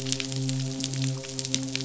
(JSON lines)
{"label": "biophony, midshipman", "recorder": "SoundTrap 500"}